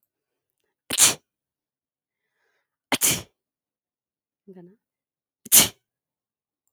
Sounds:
Sneeze